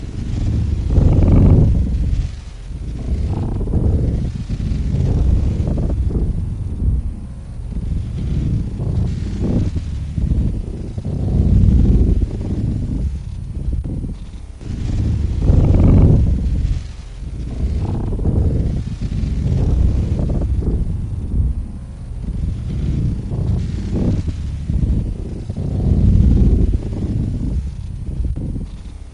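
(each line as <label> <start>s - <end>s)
Heavily distorted, muffled helicopter propeller noises repeat with a whipping motion through the air, accompanied by dull, indistinct background sounds. 0.0s - 29.1s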